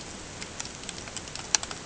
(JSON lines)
{"label": "ambient", "recorder": "HydroMoth"}